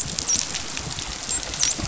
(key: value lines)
label: biophony, dolphin
recorder: SoundTrap 500